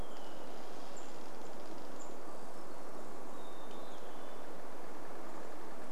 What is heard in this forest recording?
tree creak, unidentified bird chip note, Hermit Thrush song